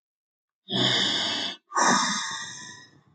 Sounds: Sigh